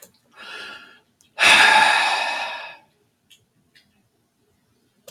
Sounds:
Sigh